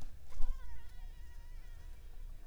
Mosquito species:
Anopheles arabiensis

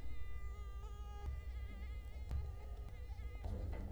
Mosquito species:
Culex quinquefasciatus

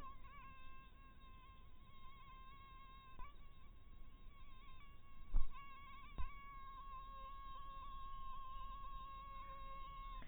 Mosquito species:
mosquito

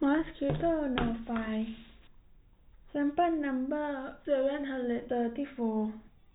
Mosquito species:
no mosquito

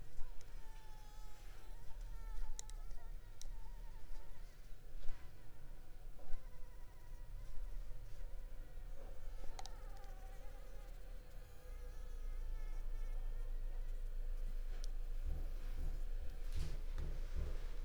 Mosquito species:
Anopheles arabiensis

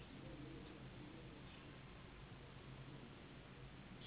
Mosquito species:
Anopheles gambiae s.s.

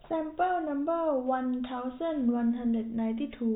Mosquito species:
no mosquito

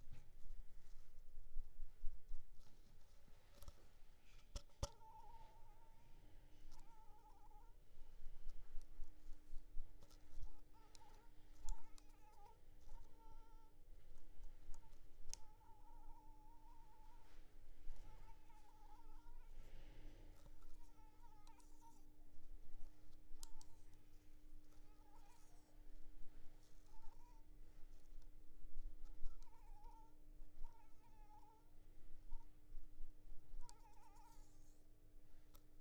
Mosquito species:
Anopheles arabiensis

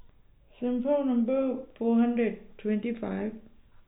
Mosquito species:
no mosquito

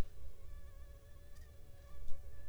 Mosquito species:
Anopheles funestus s.s.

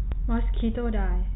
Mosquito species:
mosquito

